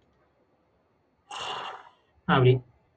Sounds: Sigh